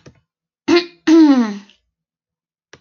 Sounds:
Throat clearing